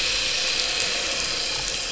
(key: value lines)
label: anthrophony, boat engine
recorder: SoundTrap 500